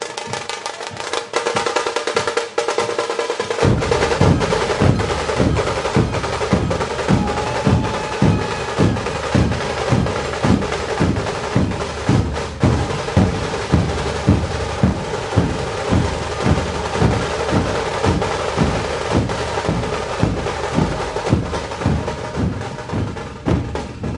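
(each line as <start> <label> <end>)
0.0 A small, high-pitched drum is played rapidly and rhythmically. 3.5
3.5 Low drum beats repeat continuously in a steady rhythm. 24.2
3.6 High-pitched small drums are played fast with changing rhythm patterns. 24.1
3.6 A large, low-pitched drum beats. 3.8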